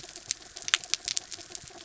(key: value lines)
label: anthrophony, mechanical
recorder: SoundTrap 300